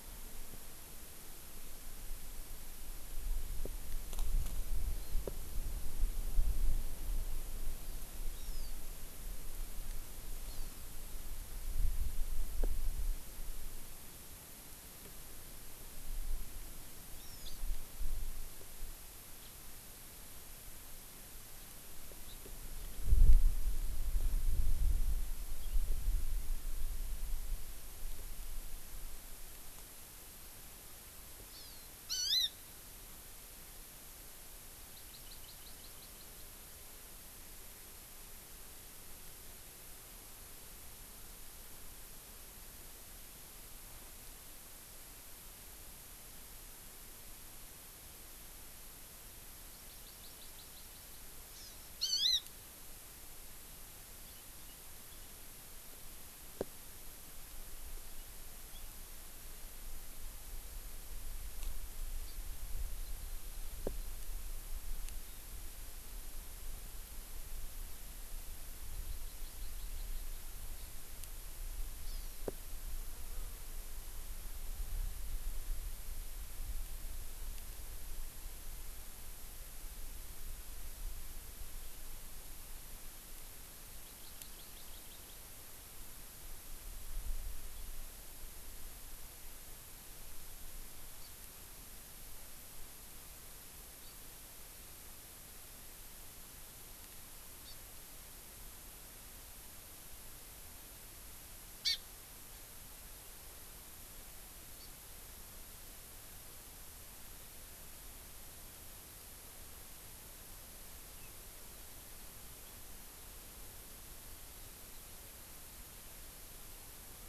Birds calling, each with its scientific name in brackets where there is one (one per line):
Hawaii Amakihi (Chlorodrepanis virens)
House Finch (Haemorhous mexicanus)